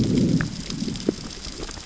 {"label": "biophony, growl", "recorder": "SoundTrap 600 or HydroMoth"}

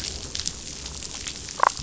{"label": "biophony, damselfish", "recorder": "SoundTrap 500"}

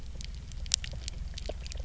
{"label": "anthrophony, boat engine", "recorder": "SoundTrap 300"}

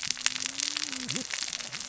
{"label": "biophony, cascading saw", "recorder": "SoundTrap 600 or HydroMoth"}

